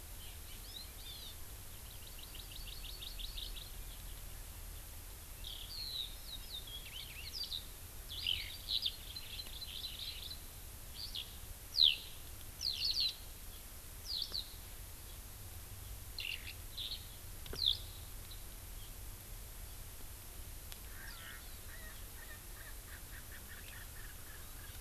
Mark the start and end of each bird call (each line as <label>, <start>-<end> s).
Hawaii Amakihi (Chlorodrepanis virens), 0.9-1.3 s
Hawaii Amakihi (Chlorodrepanis virens), 1.8-3.7 s
Eurasian Skylark (Alauda arvensis), 5.4-7.6 s
Eurasian Skylark (Alauda arvensis), 8.0-8.9 s
Hawaii Amakihi (Chlorodrepanis virens), 9.0-10.3 s
Eurasian Skylark (Alauda arvensis), 10.9-11.2 s
Eurasian Skylark (Alauda arvensis), 11.7-12.0 s
Eurasian Skylark (Alauda arvensis), 12.5-13.1 s
Eurasian Skylark (Alauda arvensis), 14.0-14.4 s
Eurasian Skylark (Alauda arvensis), 16.1-17.0 s
Eurasian Skylark (Alauda arvensis), 17.5-17.8 s
Erckel's Francolin (Pternistis erckelii), 20.8-24.7 s